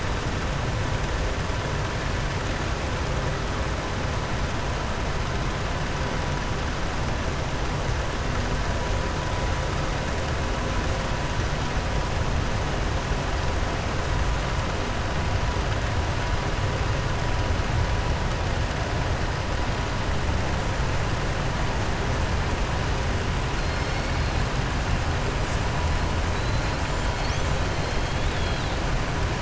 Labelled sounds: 23.6	24.2	killer whale, southern resident, 3.8 to 5.5 kHz
27.5	28.8	killer whale, southern resident, 3.2 to 4.4 kHz

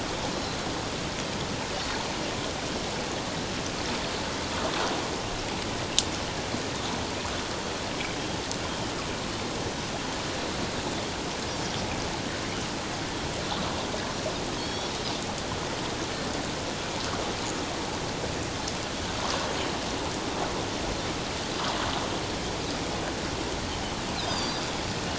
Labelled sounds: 0.3	0.6	Pacific white-sided dolphin, 4.0 to 4.1 kHz
14.6	15.0	Pacific white-sided dolphin, 3.2 to 5.8 kHz
24.2	24.7	Pacific white-sided dolphin, 3.6 to 5.2 kHz

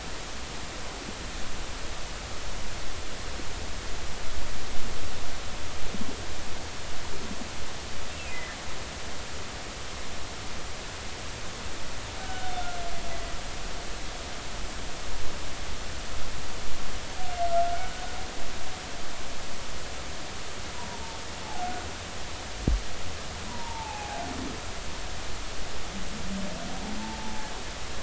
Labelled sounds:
8.1	8.6	humpback whale, 1.9 to 2.8 kHz
12.2	12.5	humpback whale, 1.4 to 1.6 kHz
17.7	18.0	humpback whale, 1.4 to 1.5 kHz
20.9	21.2	humpback whale, 0.83 to 1.0 kHz
23.5	24.2	humpback whale, 0.80 to 1.1 kHz
27.0	27.5	humpback whale, 0.80 to 0.96 kHz

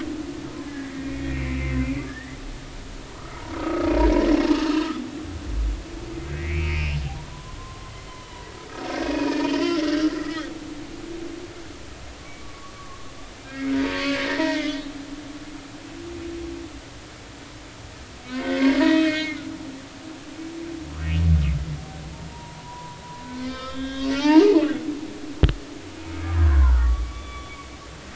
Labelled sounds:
0.6	2.4	humpback whale, 1.6 to 2.5 kHz
3.1	3.9	humpback whale, 1.1 to 1.4 kHz
6.3	7.9	humpback whale, 0.90 to 2.9 kHz
9.0	10.5	humpback whale, 1.2 to 3.0 kHz
12.4	13.1	humpback whale, 1.0 to 1.2 kHz
13.4	14.0	humpback whale, 0.90 to 1.7 kHz
14.3	14.9	humpback whale, 0.86 to 3.5 kHz
18.3	19.6	humpback whale, 1.8 to 4.4 kHz
22.3	24.7	humpback whale, 0.83 to 5.3 kHz
26.3	27.6	humpback whale, 0.86 to 3.5 kHz

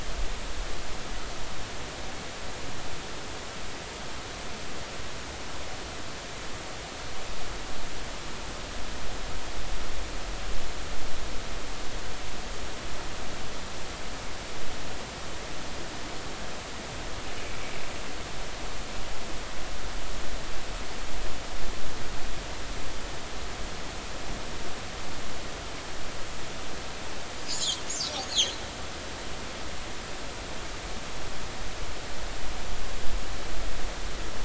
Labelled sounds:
27.5	27.8	killer whale, northern resident, 6.2 to 7.4 kHz
28.2	28.5	killer whale, northern resident, 5.9 to 6.9 kHz

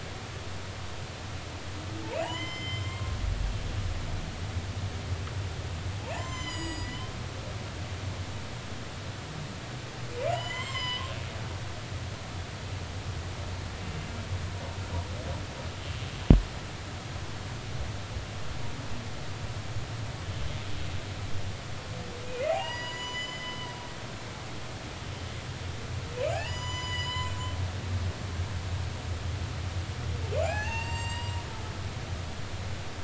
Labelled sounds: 2.2	3.0	humpback whale, 0.80 to 7.3 kHz
6.1	7.0	humpback whale, 0.83 to 8.0 kHz
10.2	11.0	humpback whale, 0.90 to 8.0 kHz
13.8	14.1	humpback whale, 2.7 to 2.8 kHz
22.2	23.7	humpback whale, 0.80 to 8.0 kHz
26.2	27.4	humpback whale, 0.80 to 8.0 kHz
30.4	31.4	humpback whale, 0.80 to 7.7 kHz

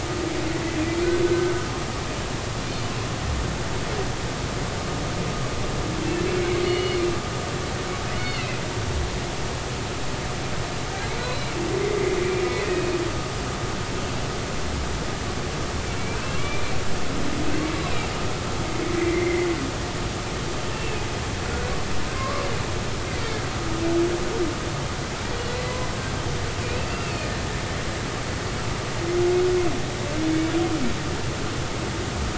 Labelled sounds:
1.2	1.5	humpback whale, 1.4 to 1.6 kHz
6.7	7.0	humpback whale, 2.8 to 3.0 kHz
8.2	8.6	humpback whale, 2.0 to 3.0 kHz
11.1	11.5	humpback whale, 2.1 to 4.1 kHz
12.7	12.9	humpback whale, 2.5 to 2.6 kHz
16.1	16.6	humpback whale, 2.2 to 2.8 kHz
18.9	19.5	humpback whale, 1.9 to 2.2 kHz
20.7	21.7	humpback whale, 1.4 to 2.8 kHz
22.2	22.4	humpback whale, 0.99 to 1.2 kHz
25.4	25.8	humpback whale, 1.9 to 2.0 kHz
26.6	27.4	humpback whale, 1.7 to 2.8 kHz

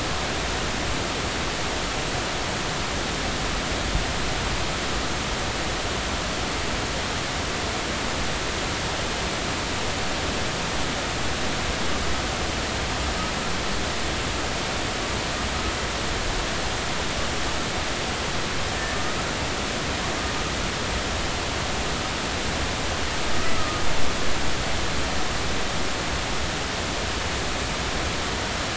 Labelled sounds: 23.5	23.8	humpback whale, 1.2 to 1.3 kHz

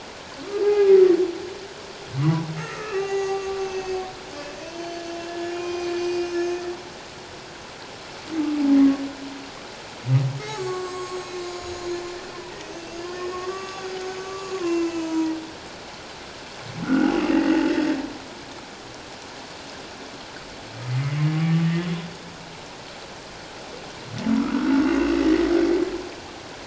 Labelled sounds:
0.5	1.2	humpback whale, 0.78 to 2.5 kHz
2.2	4.0	humpback whale, 0.78 to 7.1 kHz
4.7	5.1	humpback whale, 3.0 to 6.2 kHz
5.4	6.6	humpback whale, 1.0 to 6.8 kHz
10.4	12.3	humpback whale, 1.0 to 7.8 kHz
12.7	15.4	humpback whale, 0.84 to 6.6 kHz
16.8	18.0	humpback whale, 1.2 to 2.0 kHz
20.9	21.7	humpback whale, 1.1 to 2.2 kHz
24.5	25.3	humpback whale, 1.1 to 2.8 kHz

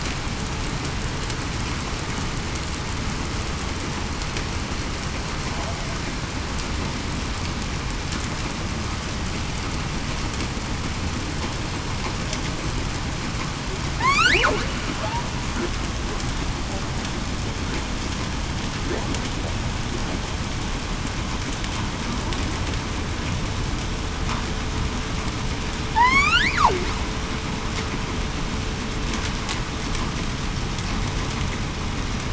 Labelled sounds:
14.0	14.4	killer whale, southern resident, 0.80 to 2.5 kHz
25.9	26.6	killer whale, southern resident, 0.82 to 5.4 kHz

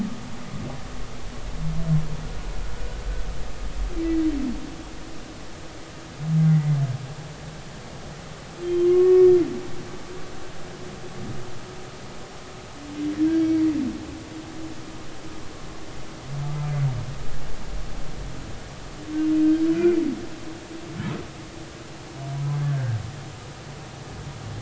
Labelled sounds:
6.5	6.7	humpback whale, 1.9 to 2.1 kHz
8.6	9.3	humpback whale, 1.0 to 3.2 kHz
22.7	23.0	humpback whale, 1.4 to 1.7 kHz

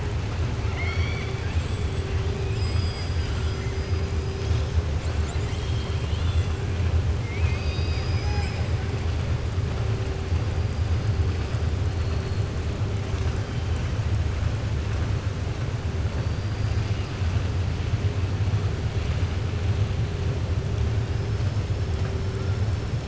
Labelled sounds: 0.6	2.1	killer whale, southern resident, 0.73 to 8.0 kHz
2.4	3.8	killer whale, southern resident, 1.7 to 7.6 kHz

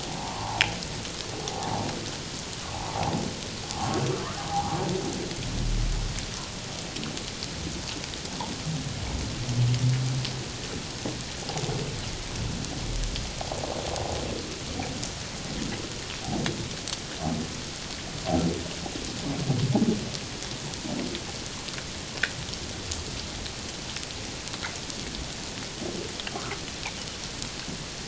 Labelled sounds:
0.1	0.6	humpback whale, 0.78 to 1.2 kHz
4.5	4.8	humpback whale, 0.78 to 1.0 kHz

